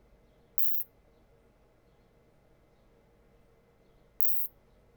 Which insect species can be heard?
Isophya plevnensis